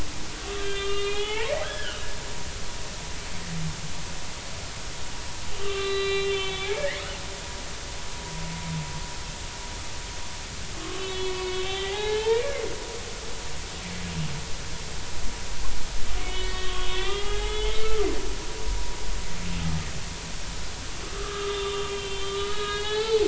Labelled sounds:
0.6	2.1	humpback whale, 0.80 to 3.8 kHz
5.6	7.0	humpback whale, 1.1 to 4.0 kHz
10.8	12.4	humpback whale, 0.80 to 4.2 kHz
16.2	18.1	humpback whale, 1.1 to 3.7 kHz
21.1	23.2	humpback whale, 0.80 to 4.5 kHz

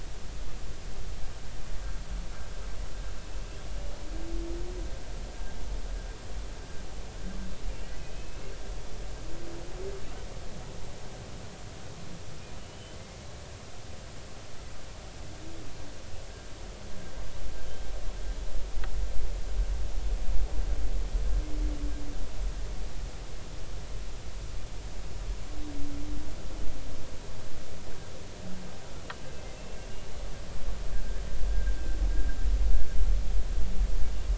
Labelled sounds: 8.1	8.5	humpback whale, 2.5 to 2.8 kHz
12.6	13.2	humpback whale, 2.0 to 3.1 kHz
29.5	29.8	humpback whale, 2.6 to 2.8 kHz

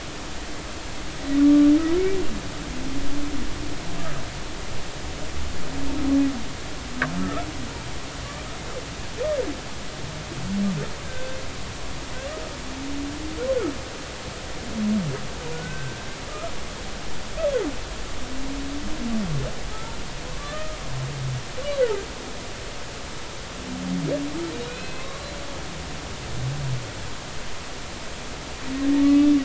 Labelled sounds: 1.4	1.7	humpback whale, 1.1 to 1.2 kHz
7.2	7.5	humpback whale, 1.2 to 1.4 kHz
11.0	11.4	humpback whale, 1.5 to 1.7 kHz
15.5	16.0	humpback whale, 1.4 to 1.6 kHz
20.4	20.8	humpback whale, 1.1 to 1.9 kHz
21.8	22.0	humpback whale, 1.2 to 1.7 kHz
24.5	25.3	humpback whale, 0.99 to 4.2 kHz
28.9	29.3	humpback whale, 1.1 to 2.7 kHz

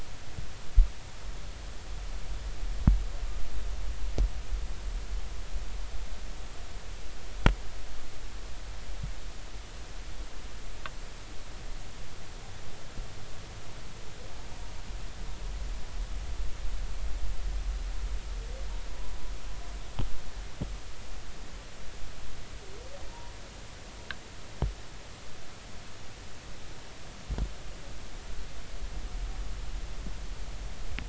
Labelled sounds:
18.9	19.2	humpback whale, 0.93 to 1.1 kHz

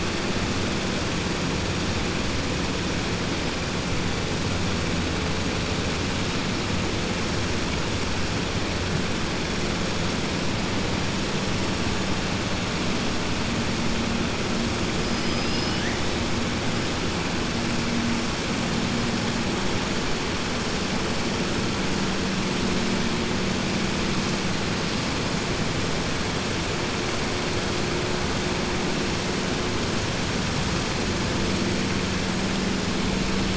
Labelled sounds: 15.4	16.0	killer whale, southern resident, 1.7 to 3.5 kHz

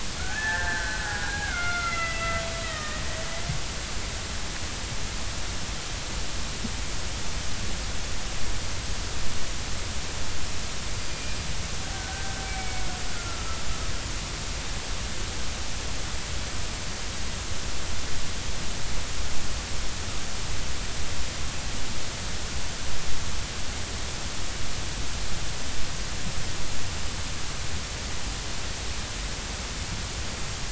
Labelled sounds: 0.2	3.1	killer whale, Bigg's (transient), call T12, 1.2 to 2.8 kHz
11.1	11.4	killer whale, Bigg's (transient), 2.3 to 2.5 kHz
11.9	13.4	killer whale, Bigg's (transient), 1.2 to 2.4 kHz

